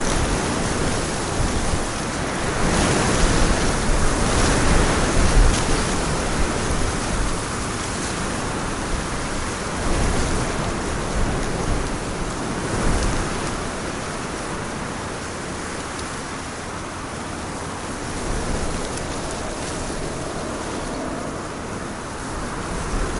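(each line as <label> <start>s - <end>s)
Strong wind blowing through trees. 0.0s - 23.2s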